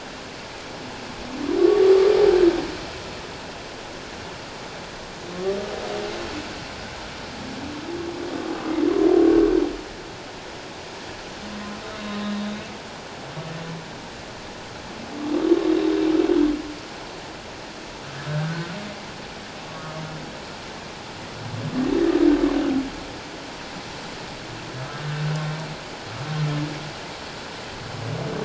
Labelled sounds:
15.7	15.9	humpback whale, 3.7 to 4.0 kHz
18.3	18.7	humpback whale, 1.4 to 1.7 kHz

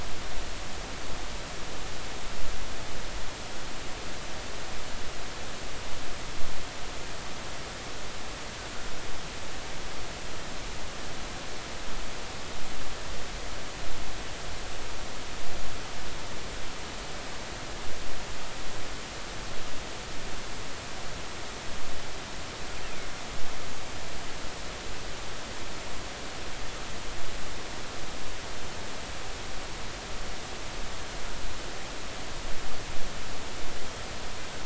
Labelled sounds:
22.8	23.1	killer whale, 2.1 to 2.8 kHz

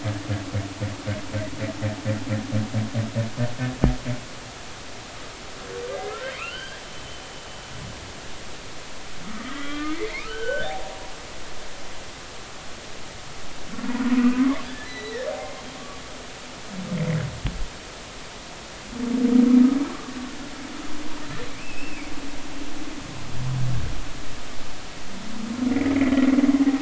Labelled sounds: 5.9	6.8	humpback whale, 1.1 to 3.3 kHz
9.4	11.0	humpback whale, 0.80 to 3.4 kHz
14.1	15.6	humpback whale, 0.96 to 4.2 kHz
21.5	22.1	humpback whale, 2.1 to 2.8 kHz
25.7	25.9	humpback whale, 1.9 to 2.4 kHz

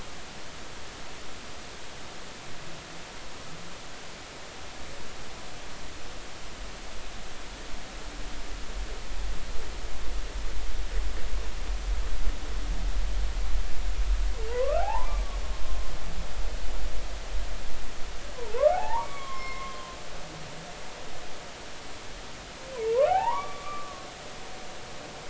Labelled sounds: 14.5	15.2	humpback whale, 0.80 to 1.7 kHz
18.7	20.0	humpback whale, 0.80 to 5.4 kHz
23.0	24.1	humpback whale, 0.80 to 2.0 kHz

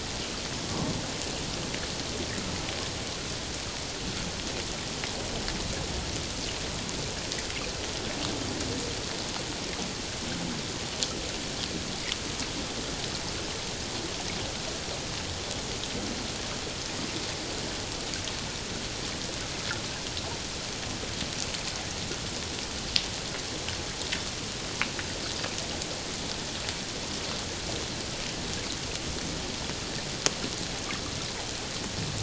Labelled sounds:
0.7	1.0	humpback whale, 0.91 to 1.2 kHz

